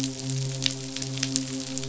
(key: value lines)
label: biophony, midshipman
recorder: SoundTrap 500